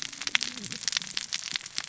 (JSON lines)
{"label": "biophony, cascading saw", "recorder": "SoundTrap 600 or HydroMoth"}